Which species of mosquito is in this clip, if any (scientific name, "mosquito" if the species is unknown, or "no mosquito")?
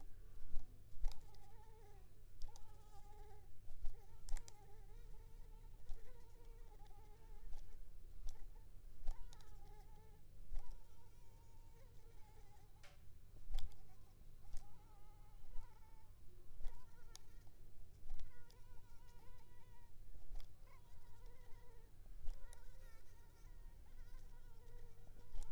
Anopheles arabiensis